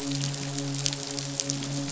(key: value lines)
label: biophony, midshipman
recorder: SoundTrap 500